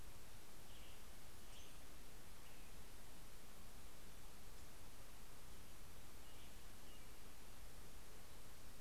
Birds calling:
Brown-headed Cowbird (Molothrus ater), American Robin (Turdus migratorius), Western Tanager (Piranga ludoviciana)

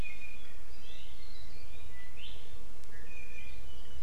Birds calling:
Apapane (Himatione sanguinea)

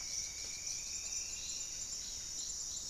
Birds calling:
Striped Woodcreeper (Xiphorhynchus obsoletus), Buff-breasted Wren (Cantorchilus leucotis)

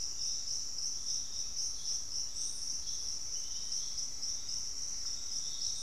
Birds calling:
Fasciated Antshrike (Cymbilaimus lineatus), Black-faced Antthrush (Formicarius analis), Piratic Flycatcher (Legatus leucophaius)

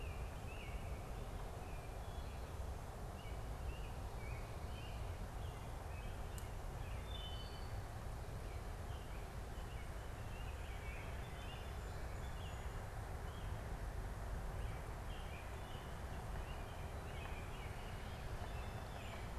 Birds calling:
Song Sparrow (Melospiza melodia), American Robin (Turdus migratorius), Wood Thrush (Hylocichla mustelina)

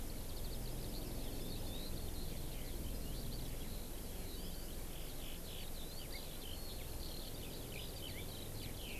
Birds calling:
Eurasian Skylark (Alauda arvensis)

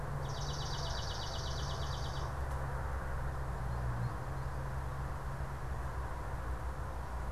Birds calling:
American Goldfinch (Spinus tristis), Swamp Sparrow (Melospiza georgiana)

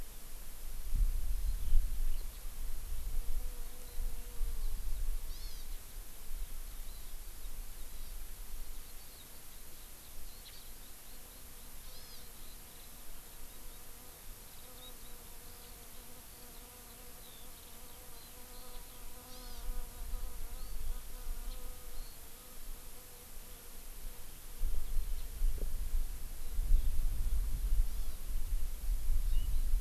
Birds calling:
House Finch (Haemorhous mexicanus), Warbling White-eye (Zosterops japonicus), Hawaii Amakihi (Chlorodrepanis virens), Eurasian Skylark (Alauda arvensis)

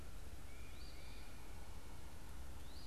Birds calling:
Tufted Titmouse (Baeolophus bicolor), Eastern Phoebe (Sayornis phoebe)

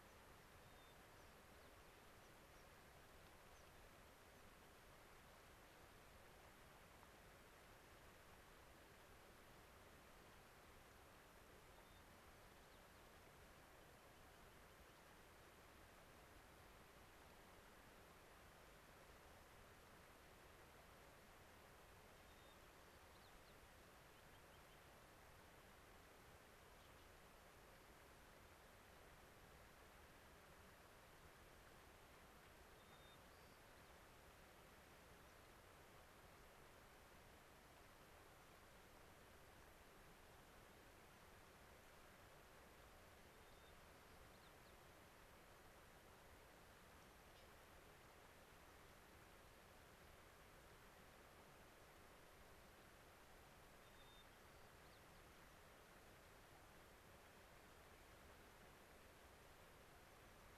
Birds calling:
American Pipit (Anthus rubescens), White-crowned Sparrow (Zonotrichia leucophrys), Spotted Sandpiper (Actitis macularius)

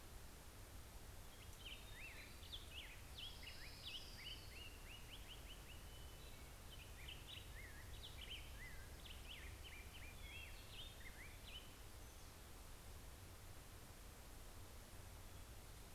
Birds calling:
Hermit Thrush (Catharus guttatus), Black-headed Grosbeak (Pheucticus melanocephalus), Orange-crowned Warbler (Leiothlypis celata)

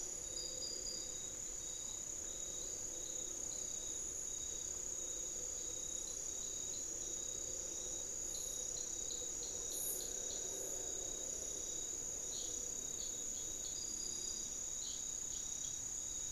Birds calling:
unidentified bird

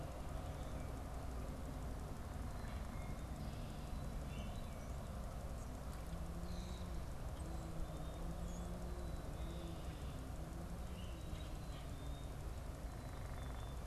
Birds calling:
Common Grackle (Quiscalus quiscula), Black-capped Chickadee (Poecile atricapillus)

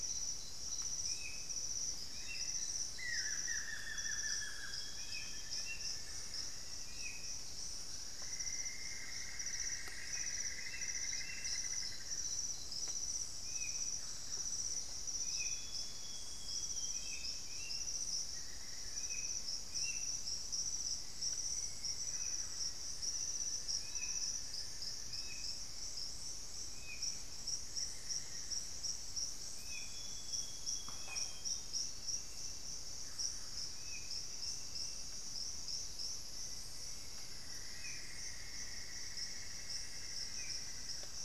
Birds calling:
Buff-throated Woodcreeper (Xiphorhynchus guttatus), Cinnamon-throated Woodcreeper (Dendrexetastes rufigula), Amazonian Barred-Woodcreeper (Dendrocolaptes certhia), Amazonian Grosbeak (Cyanoloxia rothschildii), Screaming Piha (Lipaugus vociferans), Black-faced Antthrush (Formicarius analis), Buff-breasted Wren (Cantorchilus leucotis), Grayish Mourner (Rhytipterna simplex), Solitary Black Cacique (Cacicus solitarius), Hauxwell's Thrush (Turdus hauxwelli)

